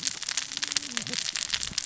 {"label": "biophony, cascading saw", "recorder": "SoundTrap 600 or HydroMoth"}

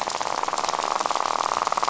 {"label": "biophony, rattle", "recorder": "SoundTrap 500"}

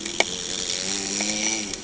{"label": "anthrophony, boat engine", "recorder": "HydroMoth"}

